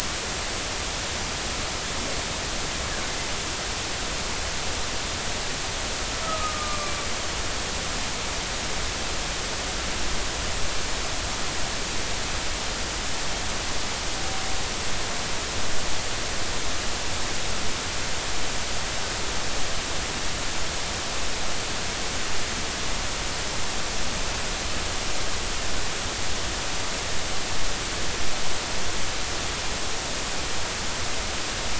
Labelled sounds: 6.2	7.0	humpback whale, 1.0 to 2.5 kHz

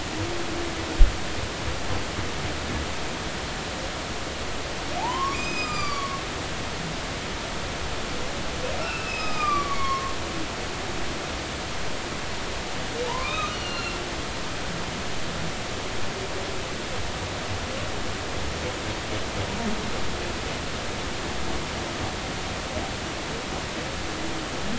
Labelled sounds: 5.0	6.7	humpback whale, 0.80 to 7.6 kHz
8.8	10.1	humpback whale, 1.0 to 6.0 kHz
13.0	14.0	humpback whale, 0.83 to 4.4 kHz

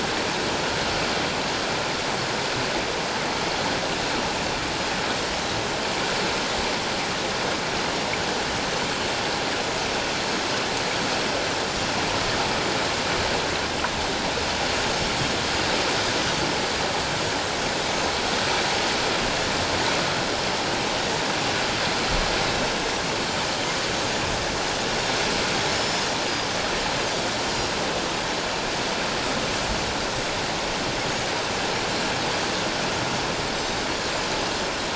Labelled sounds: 25.7	26.1	Pacific white-sided dolphin, 5.1 to 5.4 kHz

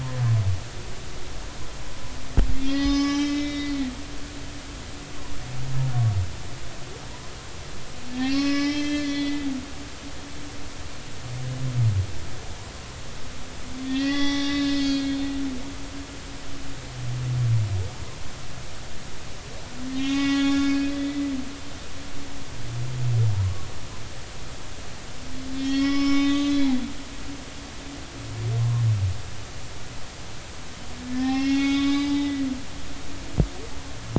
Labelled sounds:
2.6	3.7	humpback whale, 0.80 to 6.0 kHz
8.1	9.4	humpback whale, 1.1 to 5.6 kHz
13.8	15.3	humpback whale, 0.80 to 6.0 kHz
15.8	16.2	humpback whale, 4.3 to 4.5 kHz
19.9	20.8	humpback whale, 0.80 to 5.6 kHz
25.6	26.7	humpback whale, 1.1 to 6.3 kHz
31.1	32.4	humpback whale, 0.80 to 5.2 kHz

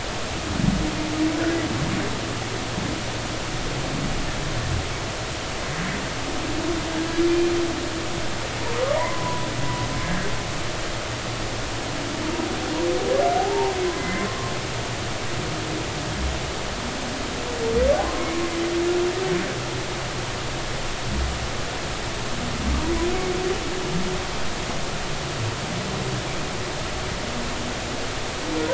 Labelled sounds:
9.0	9.5	humpback whale, 0.86 to 1.1 kHz
10.0	10.3	humpback whale, 1.5 to 1.8 kHz
13.4	14.5	humpback whale, 0.80 to 2.1 kHz
18.0	18.3	humpback whale, 0.96 to 1.1 kHz

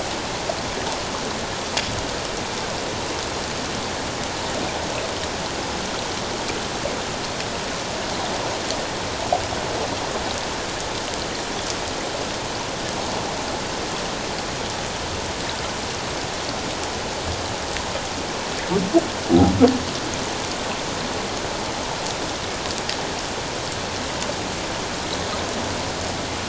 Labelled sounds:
19.3	19.5	humpback whale, 0.78 to 0.84 kHz

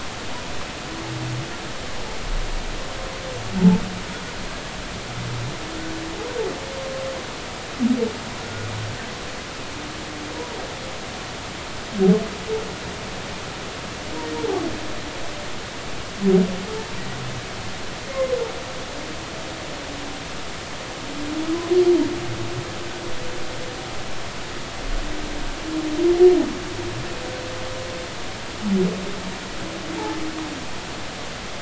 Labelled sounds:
18.1	18.4	humpback whale, 0.99 to 1.1 kHz

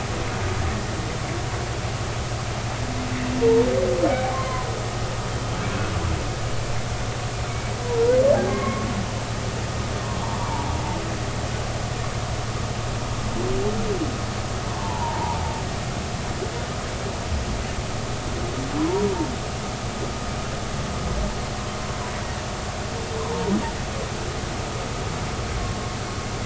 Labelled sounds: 3.4	4.7	humpback whale, 0.86 to 1.1 kHz
8.5	8.9	humpback whale, 1.0 to 2.2 kHz
10.4	10.7	humpback whale, 0.83 to 1.2 kHz
14.8	15.4	humpback whale, 0.80 to 1.1 kHz
23.2	23.6	humpback whale, 0.80 to 1.1 kHz

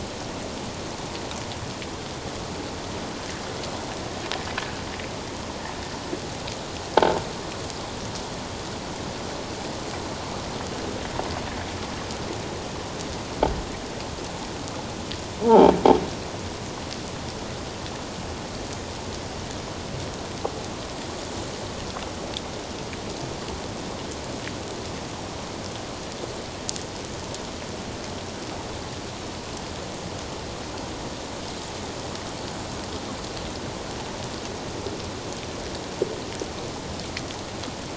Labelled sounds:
15.4	15.7	croaking sound likely from a nearby submerged object, 0.78 to 0.97 kHz

